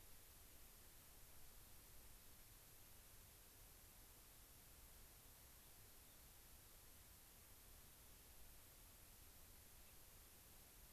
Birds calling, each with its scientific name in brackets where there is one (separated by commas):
Gray-crowned Rosy-Finch (Leucosticte tephrocotis)